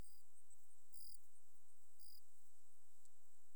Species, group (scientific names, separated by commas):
Gryllus assimilis, Orthoptera